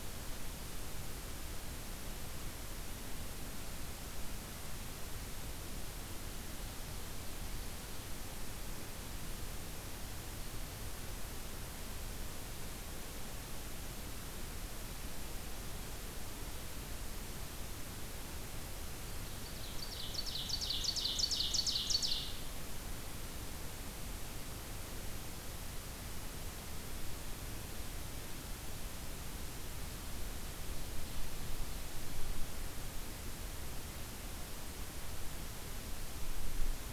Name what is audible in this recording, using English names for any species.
Ovenbird